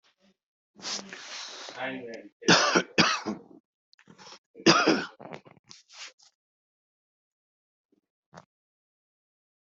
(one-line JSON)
{"expert_labels": [{"quality": "ok", "cough_type": "dry", "dyspnea": false, "wheezing": false, "stridor": false, "choking": false, "congestion": false, "nothing": true, "diagnosis": "COVID-19", "severity": "mild"}], "gender": "female", "respiratory_condition": true, "fever_muscle_pain": false, "status": "COVID-19"}